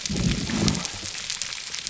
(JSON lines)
{"label": "biophony", "recorder": "SoundTrap 300"}